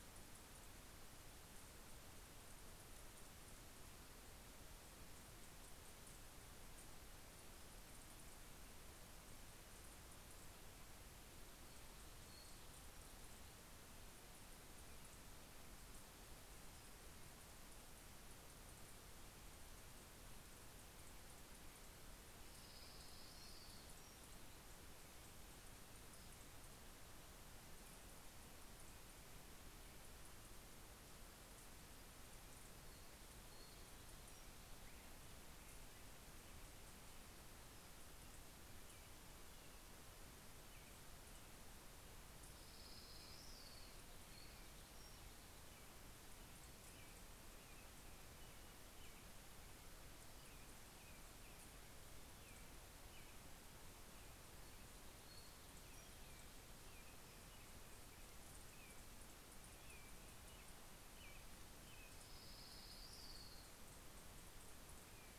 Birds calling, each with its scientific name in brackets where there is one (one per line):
Orange-crowned Warbler (Leiothlypis celata)
American Robin (Turdus migratorius)
Pacific-slope Flycatcher (Empidonax difficilis)